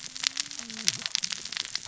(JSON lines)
{"label": "biophony, cascading saw", "recorder": "SoundTrap 600 or HydroMoth"}